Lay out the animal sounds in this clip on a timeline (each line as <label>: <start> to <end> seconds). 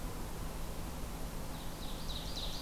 Ovenbird (Seiurus aurocapilla): 1.5 to 2.6 seconds